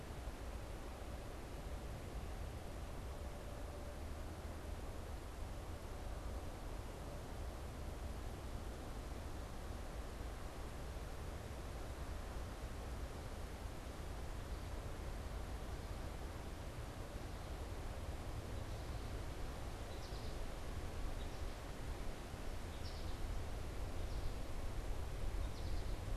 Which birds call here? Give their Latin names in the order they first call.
Spinus tristis